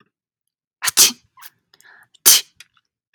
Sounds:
Sneeze